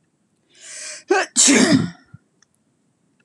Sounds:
Sneeze